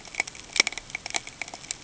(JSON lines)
{"label": "ambient", "recorder": "HydroMoth"}